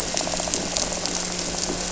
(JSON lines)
{"label": "anthrophony, boat engine", "recorder": "SoundTrap 300"}
{"label": "biophony", "recorder": "SoundTrap 300"}